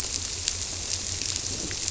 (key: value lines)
label: biophony
recorder: SoundTrap 300